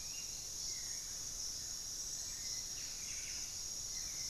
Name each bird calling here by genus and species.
Cantorchilus leucotis, Turdus hauxwelli, unidentified bird